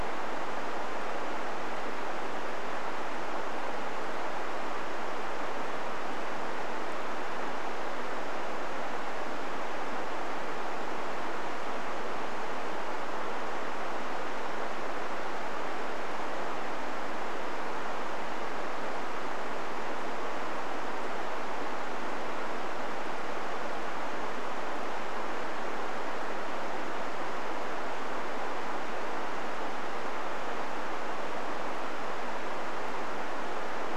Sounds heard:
forest ambience